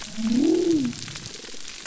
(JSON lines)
{"label": "biophony", "recorder": "SoundTrap 300"}